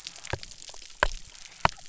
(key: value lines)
label: biophony
recorder: SoundTrap 300